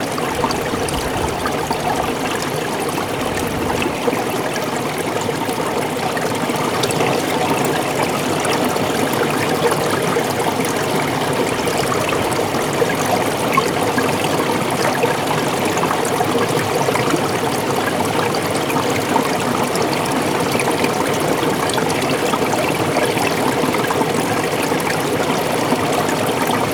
do any animals make a noise?
no